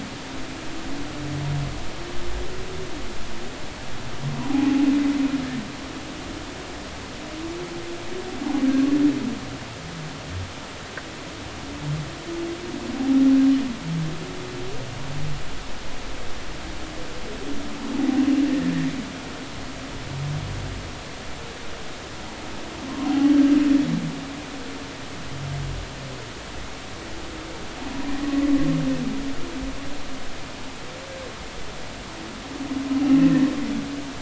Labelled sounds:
4.5	4.8	humpback whale, 0.80 to 0.90 kHz
23.1	23.3	humpback whale, 0.80 to 0.86 kHz

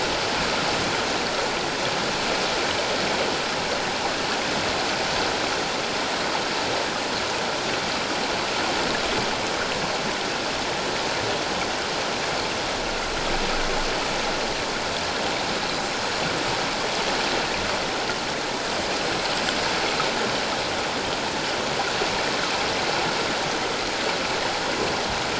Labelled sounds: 19.0	19.3	Pacific white-sided dolphin, 7.8 to 8.0 kHz

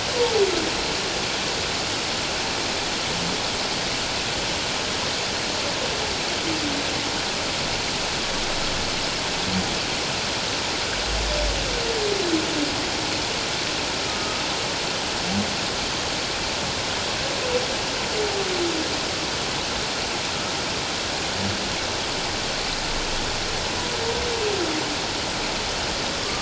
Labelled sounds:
14.1	14.4	humpback whale, 1.2 to 1.3 kHz

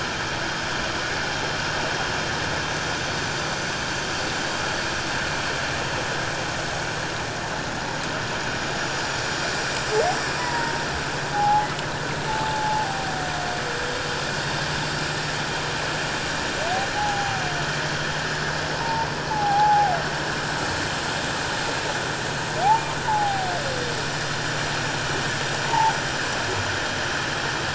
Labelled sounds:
10.4	11.7	humpback whale, 0.78 to 2.0 kHz
12.3	13.1	humpback whale, 0.78 to 0.97 kHz
17.0	17.4	humpback whale, 0.78 to 0.91 kHz
18.8	20.0	humpback whale, 0.78 to 1.0 kHz
23.0	23.5	humpback whale, 0.78 to 1.1 kHz
25.7	25.9	humpback whale, 0.78 to 1.0 kHz

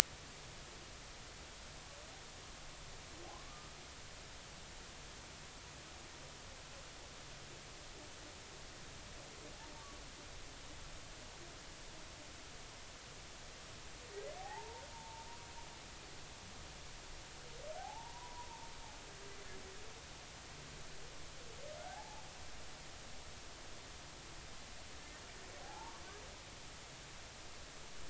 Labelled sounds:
3.3	3.7	humpback whale, 0.96 to 1.2 kHz
14.4	15.3	humpback whale, 0.80 to 1.0 kHz
17.8	18.5	humpback whale, 0.80 to 1.1 kHz
21.8	22.2	humpback whale, 0.80 to 0.93 kHz
25.6	26.0	humpback whale, 0.80 to 0.99 kHz

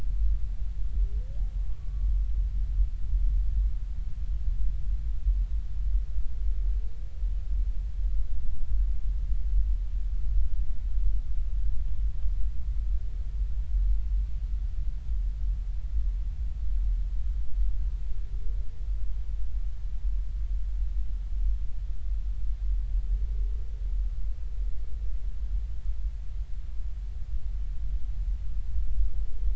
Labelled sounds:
1.8	2.0	humpback whale, 1.1 to 1.2 kHz

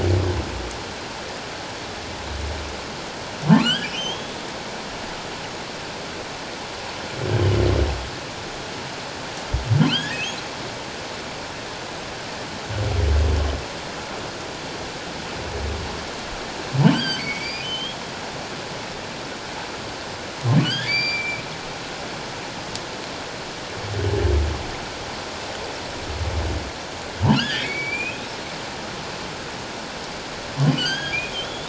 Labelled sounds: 3.6	4.4	humpback whale, 1.3 to 3.6 kHz
9.9	10.2	humpback whale, 1.3 to 3.6 kHz
16.8	18.0	humpback whale, 1.5 to 7.9 kHz
20.6	21.4	humpback whale, 1.4 to 4.8 kHz
27.3	28.3	humpback whale, 1.3 to 4.7 kHz
30.6	31.6	humpback whale, 1.4 to 6.7 kHz

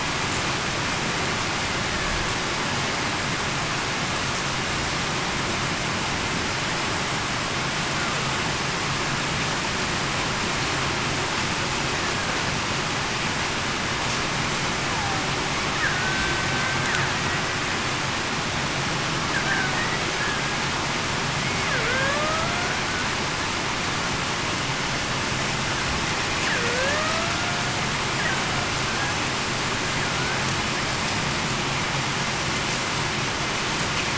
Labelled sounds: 15.9	16.3	killer whale, Bigg's (transient), 1.5 to 1.6 kHz
20.2	20.6	killer whale, Bigg's (transient), 1.6 to 1.7 kHz
21.7	22.5	killer whale, Bigg's (transient), 0.42 to 1.8 kHz
26.6	27.4	killer whale, Bigg's (transient), 0.45 to 1.9 kHz

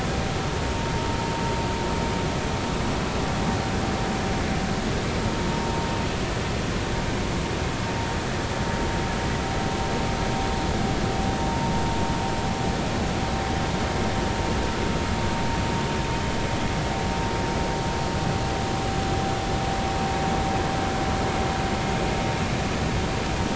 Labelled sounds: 5.6	5.9	vessel noise, 0.90 to 1.0 kHz

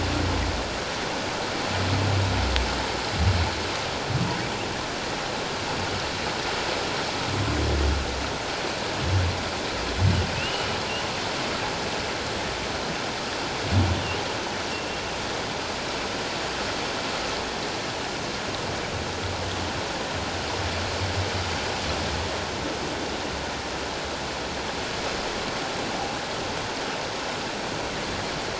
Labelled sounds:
10.3	10.7	humpback whale, 2.5 to 3.0 kHz
14.7	15.0	humpback whale, 2.6 to 2.8 kHz

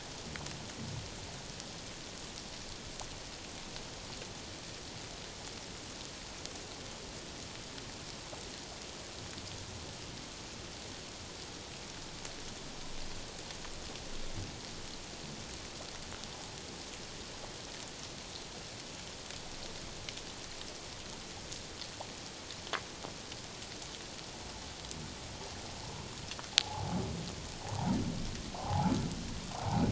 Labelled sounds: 25.8	26.1	humpback whale, 0.84 to 1.1 kHz
26.6	26.9	humpback whale, 0.78 to 1.2 kHz
28.6	28.9	humpback whale, 0.78 to 1.1 kHz

